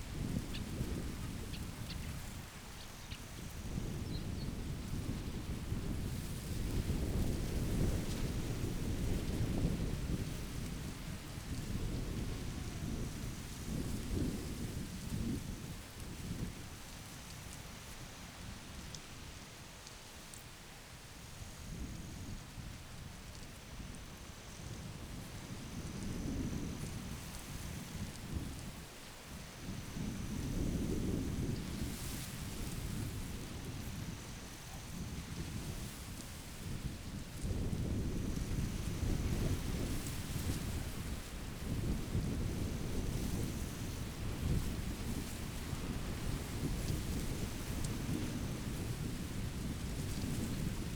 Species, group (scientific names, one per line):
Pteronemobius heydenii
Orthoptera